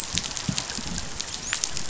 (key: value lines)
label: biophony, dolphin
recorder: SoundTrap 500